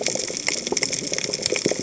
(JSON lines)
{"label": "biophony, cascading saw", "recorder": "HydroMoth"}